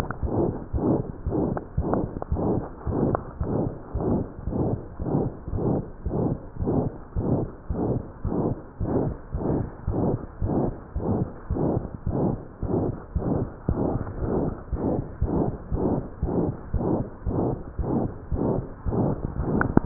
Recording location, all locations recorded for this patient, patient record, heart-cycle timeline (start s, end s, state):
pulmonary valve (PV)
aortic valve (AV)+pulmonary valve (PV)+tricuspid valve (TV)+mitral valve (MV)
#Age: Child
#Sex: Female
#Height: 84.0 cm
#Weight: 10.9 kg
#Pregnancy status: False
#Murmur: Present
#Murmur locations: aortic valve (AV)+mitral valve (MV)+pulmonary valve (PV)+tricuspid valve (TV)
#Most audible location: aortic valve (AV)
#Systolic murmur timing: Holosystolic
#Systolic murmur shape: Diamond
#Systolic murmur grading: III/VI or higher
#Systolic murmur pitch: High
#Systolic murmur quality: Harsh
#Diastolic murmur timing: nan
#Diastolic murmur shape: nan
#Diastolic murmur grading: nan
#Diastolic murmur pitch: nan
#Diastolic murmur quality: nan
#Outcome: Abnormal
#Campaign: 2015 screening campaign
0.00	0.18	unannotated
0.18	0.30	S1
0.30	0.43	systole
0.43	0.54	S2
0.54	0.70	diastole
0.70	0.79	S1
0.79	0.94	systole
0.94	1.04	S2
1.04	1.22	diastole
1.22	1.34	S1
1.34	1.48	systole
1.48	1.59	S2
1.59	1.76	diastole
1.76	1.86	S1
1.86	1.98	systole
1.98	2.08	S2
2.08	2.30	diastole
2.30	2.38	S1
2.38	2.53	systole
2.53	2.62	S2
2.62	2.86	diastole
2.86	2.97	S1
2.97	3.08	systole
3.08	3.20	S2
3.20	3.39	diastole
3.39	3.47	S1
3.47	3.64	systole
3.64	3.78	S2
3.78	3.93	diastole
3.93	4.02	S1
4.02	4.18	systole
4.18	4.28	S2
4.28	4.44	diastole
4.44	4.56	S1
4.56	4.70	systole
4.70	4.80	S2
4.80	4.99	diastole
4.99	5.08	S1
5.08	5.24	systole
5.24	5.34	S2
5.34	5.52	diastole
5.52	5.61	S1
5.61	5.72	systole
5.72	5.86	S2
5.86	6.04	diastole
6.04	6.13	S1
6.13	6.28	systole
6.28	6.42	S2
6.42	6.57	diastole
6.57	6.68	S1
6.68	6.84	systole
6.84	6.94	S2
6.94	7.14	diastole
7.14	7.21	S1
7.21	7.39	systole
7.39	7.47	S2
7.47	7.66	diastole
7.66	7.78	S1
7.78	7.93	systole
7.93	8.02	S2
8.02	8.24	diastole
8.24	8.34	S1
8.34	8.48	systole
8.48	8.56	S2
8.56	8.80	diastole
8.80	8.90	S1
8.90	9.01	systole
9.01	9.11	S2
9.11	9.30	diastole
9.30	9.42	S1
9.42	9.58	systole
9.58	9.67	S2
9.67	9.86	diastole
9.86	9.95	S1
9.95	10.10	systole
10.10	10.18	S2
10.18	10.42	diastole
10.42	10.50	S1
10.50	10.65	systole
10.65	10.72	S2
10.72	10.92	diastole
10.92	11.02	S1
11.02	11.18	systole
11.18	11.28	S2
11.28	11.47	diastole
11.47	11.57	S1
11.57	11.74	systole
11.74	11.81	S2
11.81	12.06	diastole
12.06	12.16	S1
12.16	12.30	systole
12.30	12.40	S2
12.40	12.60	diastole
12.60	12.70	S1
12.70	12.85	systole
12.85	12.93	S2
12.93	13.12	diastole
13.12	13.21	S1
13.21	13.38	systole
13.38	13.47	S2
13.47	13.66	diastole
13.66	13.76	S1
13.76	13.92	systole
13.92	14.02	S2
14.02	14.20	diastole
14.20	14.29	S1
14.29	14.45	systole
14.45	14.53	S2
14.53	14.70	diastole
14.70	19.86	unannotated